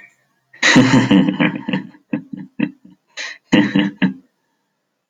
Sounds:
Laughter